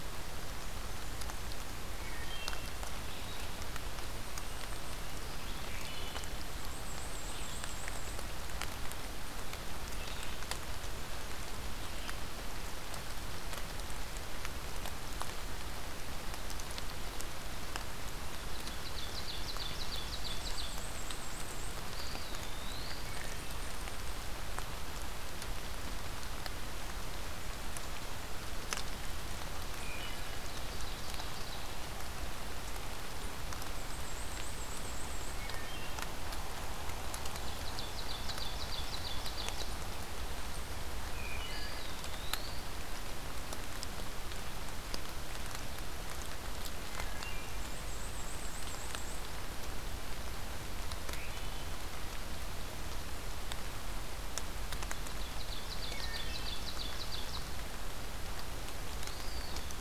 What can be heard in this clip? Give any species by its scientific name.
Hylocichla mustelina, unidentified call, Mniotilta varia, Seiurus aurocapilla, Contopus virens